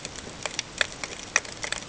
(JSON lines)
{"label": "ambient", "recorder": "HydroMoth"}